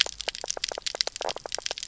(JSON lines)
{"label": "biophony, knock croak", "recorder": "SoundTrap 300"}